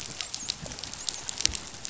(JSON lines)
{"label": "biophony, dolphin", "recorder": "SoundTrap 500"}